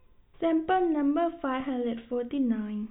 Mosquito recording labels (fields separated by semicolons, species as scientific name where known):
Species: no mosquito; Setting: cup